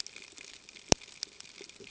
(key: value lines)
label: ambient
recorder: HydroMoth